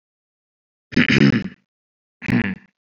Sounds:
Throat clearing